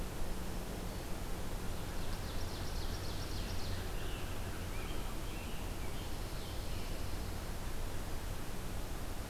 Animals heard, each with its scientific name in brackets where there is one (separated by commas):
American Robin (Turdus migratorius), Pine Warbler (Setophaga pinus), Ovenbird (Seiurus aurocapilla)